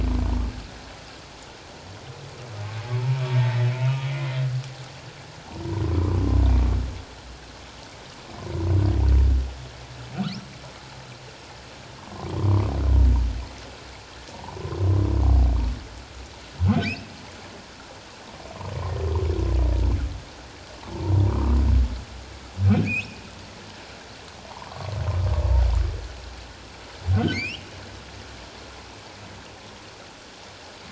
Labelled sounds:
3.4	3.7	humpback whale, 1.8 to 2.0 kHz
4.1	4.4	humpback whale, 2.0 to 2.2 kHz
6.0	6.2	humpback whale, 0.97 to 1.3 kHz
12.0	12.3	humpback whale, 0.91 to 1.2 kHz
16.8	17.1	humpback whale, 2.2 to 2.8 kHz
21.2	21.6	humpback whale, 0.91 to 1.2 kHz
22.8	23.2	humpback whale, 2.2 to 3.0 kHz
24.7	24.9	humpback whale, 1.0 to 1.2 kHz
27.1	27.6	humpback whale, 1.4 to 5.7 kHz

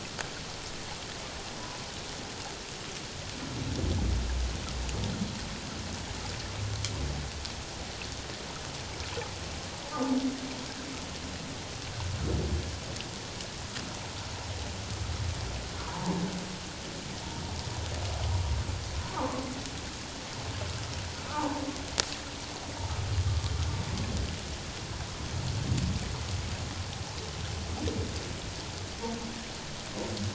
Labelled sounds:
15.9	16.2	humpback whale, 0.81 to 1.1 kHz
19.0	19.4	humpback whale, 0.84 to 1.3 kHz
21.3	21.6	humpback whale, 0.81 to 1.0 kHz

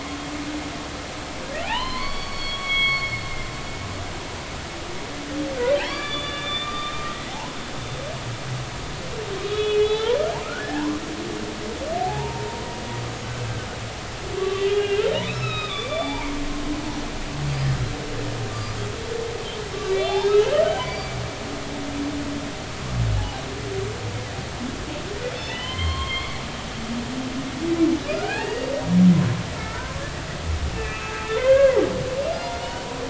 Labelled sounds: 1.6	3.2	humpback whale, 0.80 to 4.6 kHz
5.8	7.6	humpback whale, 0.80 to 4.8 kHz
9.4	11.0	humpback whale, 0.80 to 4.0 kHz
12.0	12.6	humpback whale, 0.80 to 0.99 kHz
14.4	16.4	humpback whale, 0.80 to 5.4 kHz
18.5	18.8	humpback whale, 4.7 to 7.3 kHz
19.8	21.5	humpback whale, 2.2 to 5.1 kHz
23.2	23.4	humpback whale, 0.80 to 1.0 kHz
25.4	26.4	humpback whale, 0.99 to 4.3 kHz
28.1	28.7	humpback whale, 0.80 to 4.8 kHz
29.6	30.0	humpback whale, 0.93 to 1.4 kHz
30.7	31.8	humpback whale, 0.83 to 2.7 kHz
32.4	32.8	humpback whale, 0.90 to 3.0 kHz

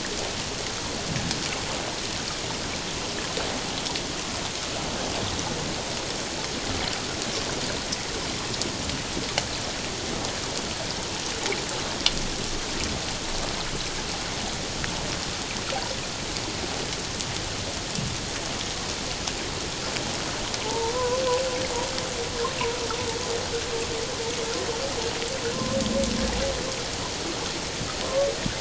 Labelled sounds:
20.6	21.2	humpback whale, 0.81 to 1.1 kHz

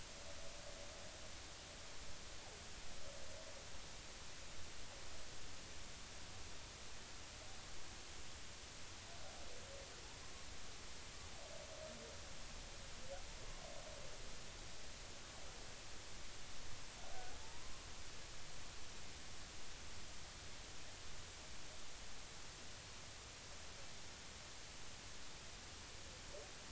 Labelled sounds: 17.4	17.7	humpback whale, 0.83 to 1.1 kHz

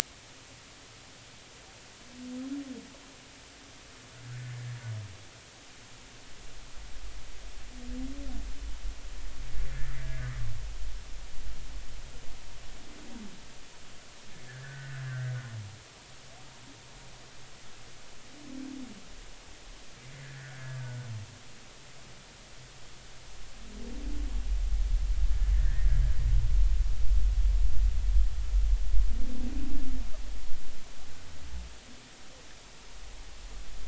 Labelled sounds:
4.3	4.5	humpback whale, 1.4 to 1.6 kHz
14.5	15.3	humpback whale, 1.3 to 2.0 kHz
20.2	21.0	humpback whale, 1.4 to 1.9 kHz
25.5	26.0	humpback whale, 1.5 to 2.0 kHz

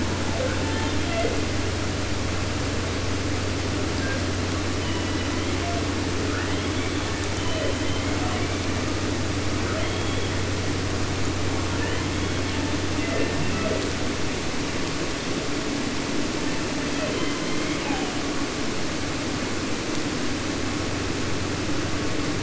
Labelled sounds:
0.3	1.5	killer whale, southern resident, J pod, call S01, 0.15 to 4.7 kHz
3.9	4.3	killer whale, 1.3 to 2.1 kHz
4.7	5.8	killer whale, southern resident, J pod, call S01, 0.50 to 4.6 kHz
6.3	7.3	killer whale, 0.20 to 4.5 kHz
7.3	9.1	killer whale, southern resident, J pod, call S01, 0.18 to 4.4 kHz
9.6	10.8	killer whale, southern resident, 0.27 to 4.0 kHz
11.6	12.9	killer whale, southern resident, 0.50 to 5.5 kHz
12.9	13.9	killer whale, southern resident, J pod, call S01, 0.22 to 3.6 kHz
16.4	18.2	killer whale, southern resident, J pod, call S01, 0.24 to 5.1 kHz

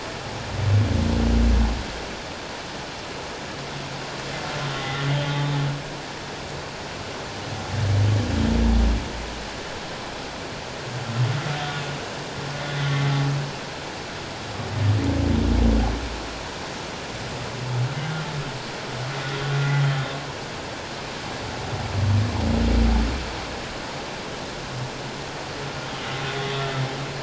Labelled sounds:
4.8	5.6	humpback whale, 1.9 to 3.8 kHz
12.6	12.9	humpback whale, 3.4 to 3.5 kHz

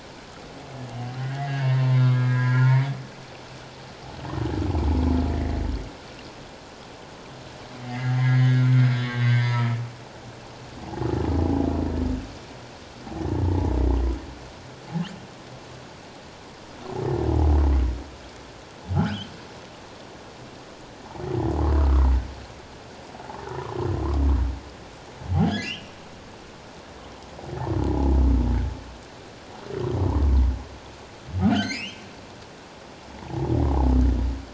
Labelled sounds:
1.2	1.6	humpback whale, 1.8 to 2.1 kHz
2.0	2.9	humpback whale, 0.88 to 2.2 kHz
5.3	5.6	humpback whale, 1.7 to 2.2 kHz
7.8	9.8	humpback whale, 0.91 to 5.0 kHz
19.0	19.3	humpback whale, 1.2 to 1.7 kHz
25.3	26.0	humpback whale, 1.4 to 5.7 kHz
31.5	32.0	humpback whale, 1.3 to 5.6 kHz
33.1	33.5	humpback whale, 0.78 to 1.0 kHz

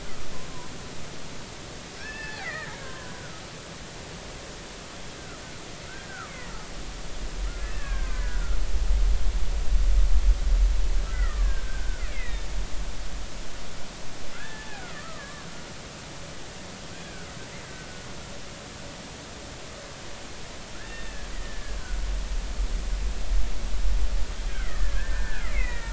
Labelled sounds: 2.0	3.2	killer whale, Bigg's (transient), 0.80 to 2.7 kHz
5.9	6.5	killer whale, Bigg's (transient), 1.1 to 2.3 kHz
7.5	8.6	killer whale, Bigg's (transient), 1.2 to 2.7 kHz
11.1	12.5	killer whale, Bigg's (transient), 1.0 to 2.8 kHz
14.4	15.6	killer whale, Bigg's (transient), 1.0 to 2.0 kHz
17.0	17.3	killer whale, Bigg's (transient), 1.4 to 1.7 kHz
20.7	21.6	killer whale, Bigg's (transient), 1.3 to 3.7 kHz
24.5	25.9	killer whale, Bigg's (transient), 1.2 to 2.7 kHz

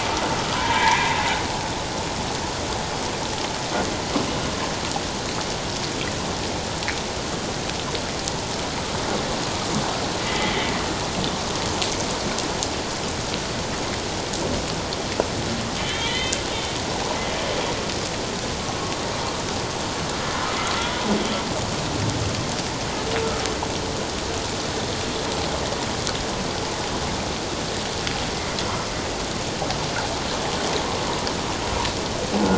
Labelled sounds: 0.5	1.2	humpback whale, 0.84 to 2.4 kHz
10.2	10.5	humpback whale, 1.9 to 2.1 kHz
15.8	16.4	humpback whale, 1.9 to 3.7 kHz

